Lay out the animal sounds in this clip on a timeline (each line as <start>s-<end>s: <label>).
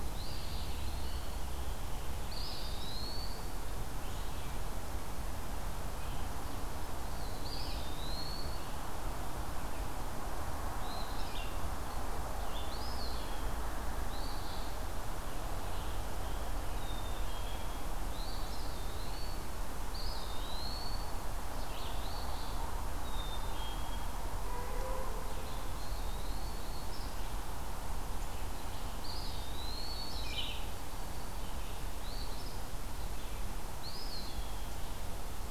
0.0s-1.4s: Eastern Wood-Pewee (Contopus virens)
0.1s-0.8s: Eastern Phoebe (Sayornis phoebe)
0.1s-2.7s: Scarlet Tanager (Piranga olivacea)
2.2s-3.5s: Eastern Wood-Pewee (Contopus virens)
2.2s-3.0s: Eastern Phoebe (Sayornis phoebe)
4.0s-8.0s: Red-eyed Vireo (Vireo olivaceus)
7.0s-8.7s: Eastern Wood-Pewee (Contopus virens)
10.7s-11.4s: Eastern Phoebe (Sayornis phoebe)
11.1s-12.8s: Red-eyed Vireo (Vireo olivaceus)
12.7s-13.6s: Eastern Wood-Pewee (Contopus virens)
14.0s-14.7s: Eastern Phoebe (Sayornis phoebe)
15.1s-17.5s: Scarlet Tanager (Piranga olivacea)
16.7s-17.9s: Black-capped Chickadee (Poecile atricapillus)
18.1s-18.7s: Eastern Phoebe (Sayornis phoebe)
18.2s-19.5s: Eastern Wood-Pewee (Contopus virens)
19.9s-21.1s: Eastern Wood-Pewee (Contopus virens)
21.5s-22.1s: Red-eyed Vireo (Vireo olivaceus)
21.9s-22.7s: Eastern Phoebe (Sayornis phoebe)
23.0s-24.2s: Black-capped Chickadee (Poecile atricapillus)
25.2s-29.1s: Red-eyed Vireo (Vireo olivaceus)
25.6s-26.8s: Eastern Wood-Pewee (Contopus virens)
26.7s-27.2s: Eastern Phoebe (Sayornis phoebe)
28.9s-30.3s: Eastern Wood-Pewee (Contopus virens)
30.1s-30.8s: Red-eyed Vireo (Vireo olivaceus)
30.4s-31.9s: Black-throated Green Warbler (Setophaga virens)
31.9s-32.6s: Eastern Phoebe (Sayornis phoebe)
33.7s-34.9s: Eastern Wood-Pewee (Contopus virens)